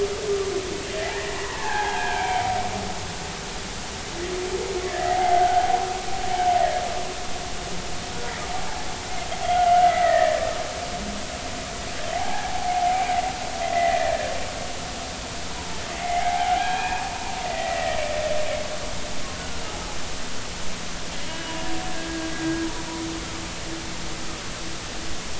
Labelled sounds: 0.3	0.5	humpback whale, 1.1 to 1.3 kHz
1.4	2.4	humpback whale, 0.80 to 3.3 kHz
5.0	5.8	humpback whale, 0.80 to 1.6 kHz
9.8	10.4	humpback whale, 1.7 to 2.1 kHz
12.1	12.9	humpback whale, 0.80 to 1.0 kHz
13.6	14.3	humpback whale, 1.6 to 2.1 kHz
16.0	17.1	humpback whale, 0.80 to 2.6 kHz
17.4	18.0	humpback whale, 1.8 to 2.0 kHz
21.3	21.6	humpback whale, 2.8 to 3.0 kHz

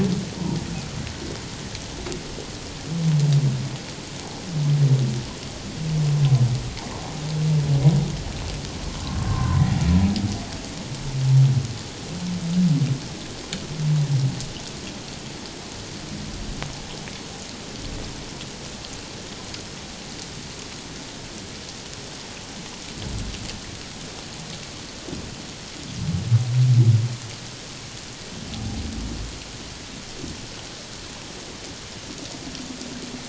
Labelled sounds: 9.3	9.6	humpback whale, 0.97 to 1.1 kHz
28.5	28.8	humpback whale, 0.78 to 0.88 kHz

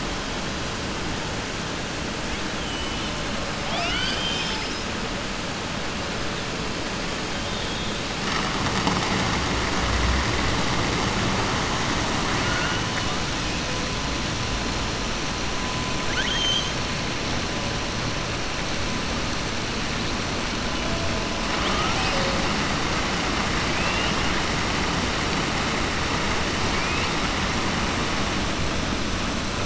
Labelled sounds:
2.6	3.2	killer whale, southern resident, 2.2 to 3.9 kHz
3.6	4.9	killer whale, southern resident, 0.70 to 7.8 kHz
16.0	16.7	killer whale, southern resident, 1.5 to 4.8 kHz
23.7	24.3	killer whale, southern resident, 1.7 to 3.9 kHz
26.7	27.2	killer whale, southern resident, 1.7 to 3.7 kHz

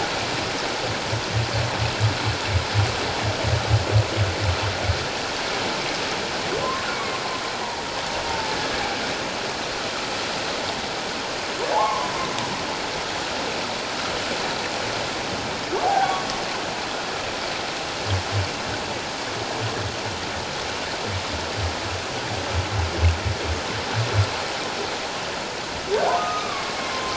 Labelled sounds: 6.6	7.2	humpback whale, 0.97 to 2.3 kHz
8.3	8.6	humpback whale, 0.84 to 0.94 kHz
11.7	12.1	humpback whale, 0.78 to 1.2 kHz
15.8	16.2	humpback whale, 0.78 to 0.88 kHz
26.2	27.1	humpback whale, 1.0 to 1.3 kHz

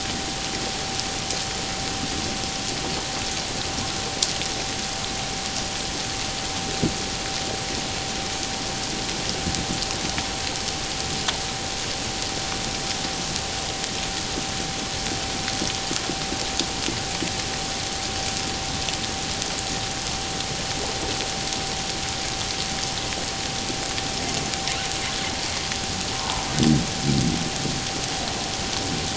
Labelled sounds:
26.2	26.5	humpback whale, 0.84 to 1.1 kHz

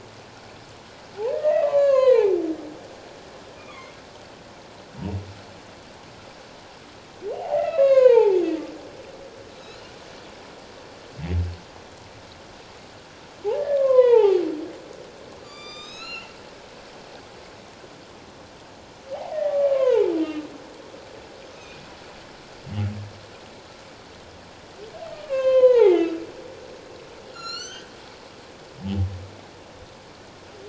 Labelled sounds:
1.3	2.4	humpback whale, 0.78 to 7.0 kHz
3.7	4.0	humpback whale, 2.0 to 2.3 kHz
7.3	8.4	humpback whale, 0.78 to 5.0 kHz
9.6	9.9	humpback whale, 3.8 to 4.3 kHz
13.8	14.4	humpback whale, 0.78 to 3.2 kHz
15.4	16.4	humpback whale, 1.1 to 7.6 kHz
19.3	20.5	humpback whale, 0.81 to 2.8 kHz
21.5	21.8	humpback whale, 2.4 to 2.6 kHz
25.1	26.1	humpback whale, 0.78 to 3.9 kHz
27.3	27.9	humpback whale, 1.3 to 7.8 kHz

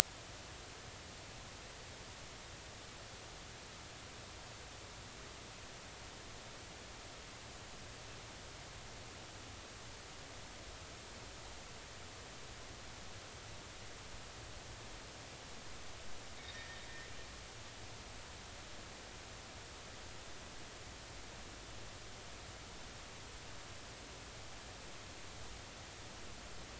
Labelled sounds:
16.5	16.8	anchor noise, 1.8 to 1.9 kHz

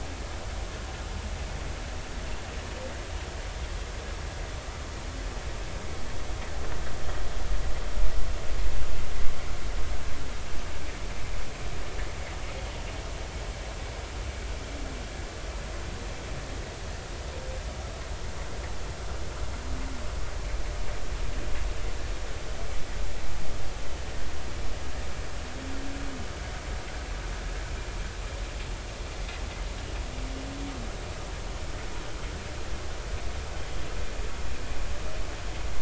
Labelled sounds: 29.1	29.4	vessel noise, 1.9 to 2.2 kHz

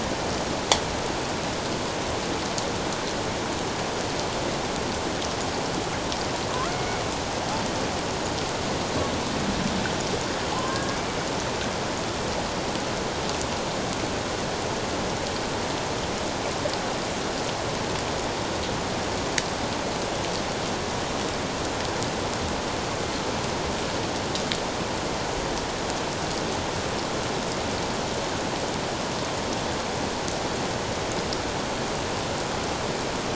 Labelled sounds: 6.5	6.8	killer whale, 0.97 to 1.5 kHz
6.7	7.0	killer whale, Bigg's (transient), call T01, 2.1 to 2.3 kHz
10.5	10.8	killer whale, Bigg's (transient), call T01, 0.97 to 1.2 kHz
10.7	11.0	killer whale, 1.5 to 1.8 kHz

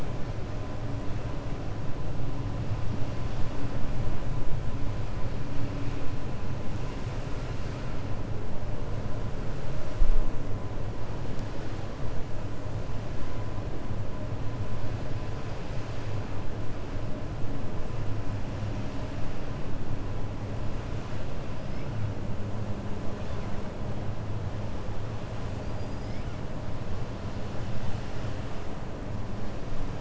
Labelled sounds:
25.6	26.2	killer whale, 4.1 to 5.3 kHz

